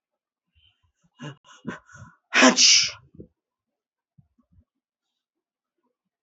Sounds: Sneeze